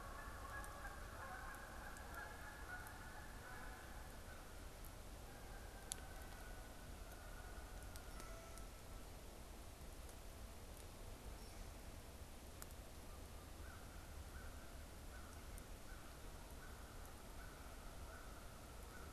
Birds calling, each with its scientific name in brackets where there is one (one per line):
Canada Goose (Branta canadensis)
American Crow (Corvus brachyrhynchos)